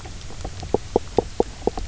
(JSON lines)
{"label": "biophony, knock croak", "recorder": "SoundTrap 300"}